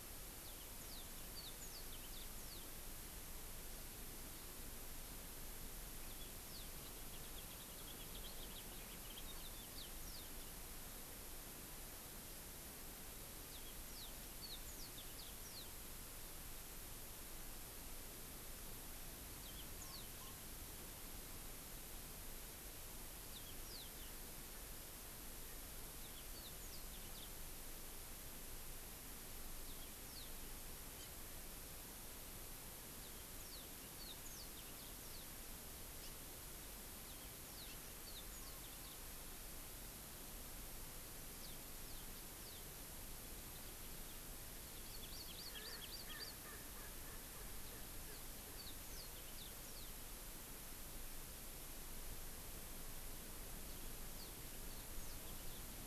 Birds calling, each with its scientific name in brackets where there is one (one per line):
House Finch (Haemorhous mexicanus)
Erckel's Francolin (Pternistis erckelii)
Yellow-fronted Canary (Crithagra mozambica)
Hawaii Amakihi (Chlorodrepanis virens)